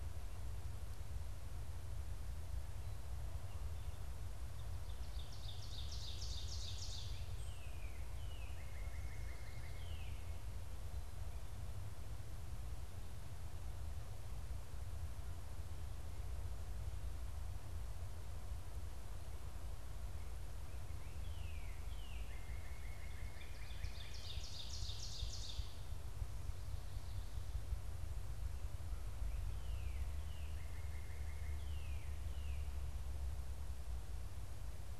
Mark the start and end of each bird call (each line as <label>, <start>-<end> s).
Ovenbird (Seiurus aurocapilla), 4.2-7.6 s
Northern Cardinal (Cardinalis cardinalis), 7.0-10.5 s
Northern Cardinal (Cardinalis cardinalis), 20.6-24.5 s
Ovenbird (Seiurus aurocapilla), 23.3-26.2 s
Northern Cardinal (Cardinalis cardinalis), 29.1-32.9 s